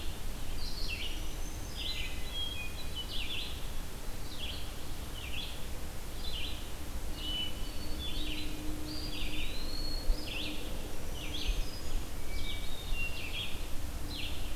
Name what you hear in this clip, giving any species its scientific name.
Vireo olivaceus, Setophaga virens, Catharus guttatus, Contopus virens